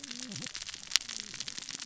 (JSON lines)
{"label": "biophony, cascading saw", "recorder": "SoundTrap 600 or HydroMoth"}